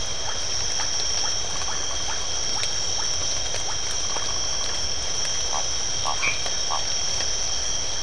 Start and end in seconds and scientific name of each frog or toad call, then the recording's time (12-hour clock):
0.0	4.3	Leptodactylus notoaktites
6.2	6.4	Boana albomarginata
7:30pm